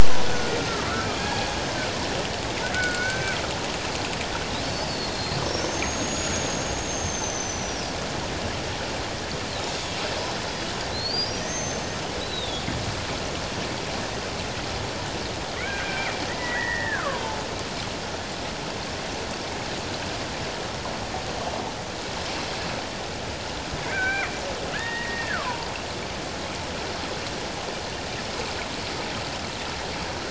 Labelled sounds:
0.3	1.5	killer whale, Bigg's (transient), 0.78 to 6.5 kHz
2.7	3.4	killer whale, Bigg's (transient), 1.4 to 6.2 kHz
4.9	8.0	killer whale, Bigg's (transient), 4.1 to 6.9 kHz
10.9	12.6	killer whale, Bigg's (transient), 1.8 to 6.4 kHz
15.6	17.2	killer whale, Bigg's (transient), 0.94 to 2.5 kHz
23.8	25.7	killer whale, Bigg's (transient), 0.88 to 2.4 kHz

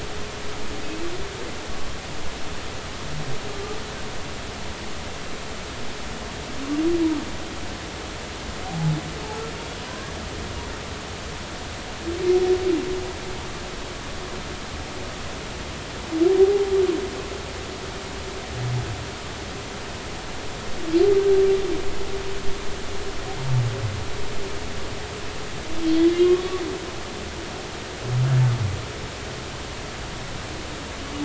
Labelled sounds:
3.5	3.8	humpback whale, 1.2 to 1.3 kHz
8.6	8.9	humpback whale, 0.80 to 0.90 kHz
9.9	10.1	humpback whale, 1.5 to 1.7 kHz
16.4	16.7	humpback whale, 0.80 to 0.86 kHz
25.8	26.1	humpback whale, 3.2 to 3.4 kHz

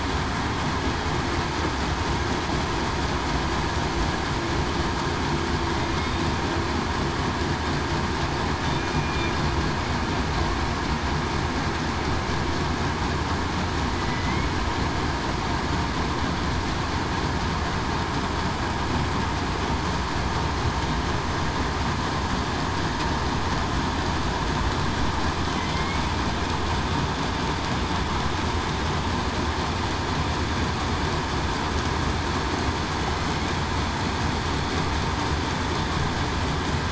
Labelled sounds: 8.9	9.3	killer whale, southern resident, 2.3 to 2.4 kHz
13.9	14.5	killer whale, southern resident, 1.9 to 2.2 kHz
25.5	26.0	killer whale, southern resident, 2.0 to 2.3 kHz

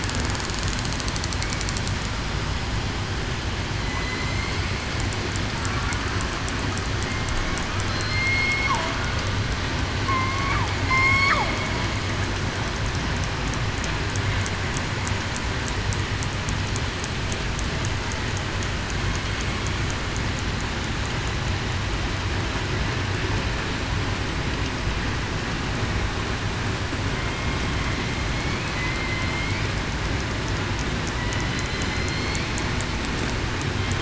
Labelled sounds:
3.8	4.5	killer whale, southern resident, 2.0 to 2.2 kHz
7.9	8.6	killer whale, southern resident, 4.1 to 4.4 kHz
10.0	10.5	killer whale, southern resident, 1.0 to 1.2 kHz
10.9	11.3	killer whale, southern resident, 0.98 to 5.5 kHz
27.1	27.6	killer whale, southern resident, 2.1 to 2.2 kHz
28.7	29.6	killer whale, southern resident, 2.0 to 2.4 kHz
31.9	32.4	killer whale, southern resident, 2.0 to 4.7 kHz

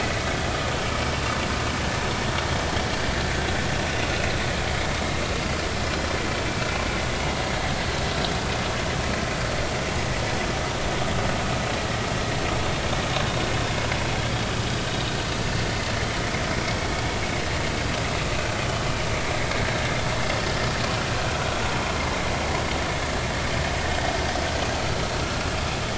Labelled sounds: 19.4	19.6	vessel noise, 2.1 to 2.2 kHz

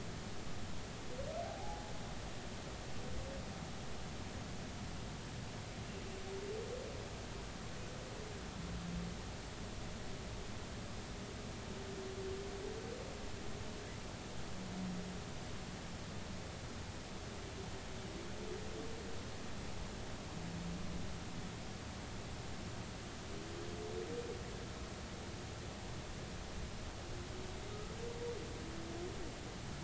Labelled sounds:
1.4	1.9	humpback whale, 0.80 to 0.90 kHz

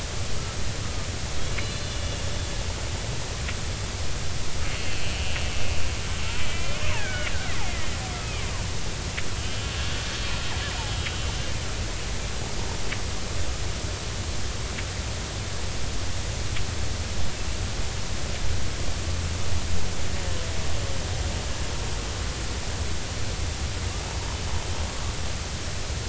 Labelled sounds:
0.8	2.3	killer whale, Bigg's (transient), 1.2 to 4.2 kHz
4.8	5.9	killer whale, Bigg's (transient), 2.5 to 3.2 kHz
6.4	7.4	killer whale, Bigg's (transient), 1.4 to 3.0 kHz
8.2	9.7	killer whale, Bigg's (transient), 2.0 to 3.3 kHz
11.1	11.5	killer whale, Bigg's (transient), 3.0 to 3.1 kHz

